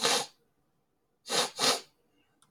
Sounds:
Sniff